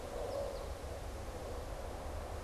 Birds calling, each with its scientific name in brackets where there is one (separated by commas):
American Goldfinch (Spinus tristis)